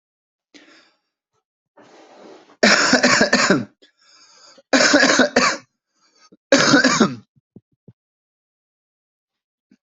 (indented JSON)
{
  "expert_labels": [
    {
      "quality": "good",
      "cough_type": "wet",
      "dyspnea": false,
      "wheezing": false,
      "stridor": false,
      "choking": false,
      "congestion": false,
      "nothing": true,
      "diagnosis": "upper respiratory tract infection",
      "severity": "mild"
    }
  ],
  "age": 40,
  "gender": "male",
  "respiratory_condition": false,
  "fever_muscle_pain": false,
  "status": "symptomatic"
}